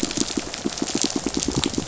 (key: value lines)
label: biophony, pulse
recorder: SoundTrap 500